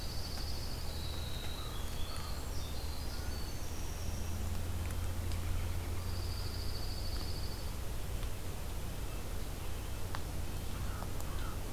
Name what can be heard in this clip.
Dark-eyed Junco, Winter Wren, American Crow, Red-breasted Nuthatch, American Robin